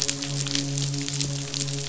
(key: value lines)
label: biophony, midshipman
recorder: SoundTrap 500